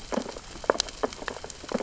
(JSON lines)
{"label": "biophony, sea urchins (Echinidae)", "recorder": "SoundTrap 600 or HydroMoth"}